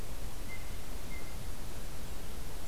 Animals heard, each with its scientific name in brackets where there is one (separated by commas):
Blue Jay (Cyanocitta cristata)